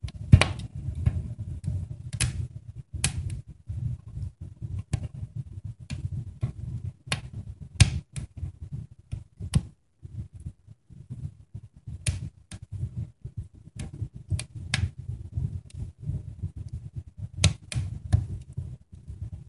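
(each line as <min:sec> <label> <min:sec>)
0:00.0 A fireplace crackles. 0:19.5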